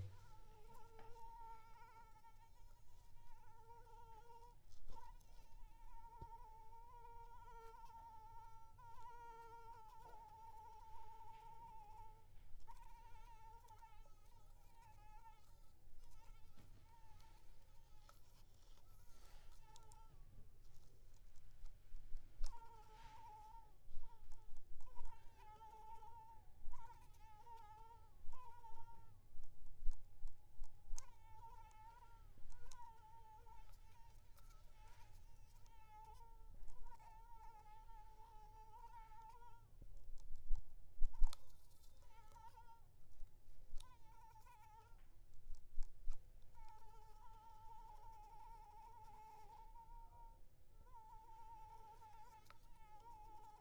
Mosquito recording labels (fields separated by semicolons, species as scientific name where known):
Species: Anopheles arabiensis; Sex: female; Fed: unfed; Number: one; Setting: cup